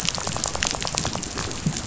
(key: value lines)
label: biophony, rattle
recorder: SoundTrap 500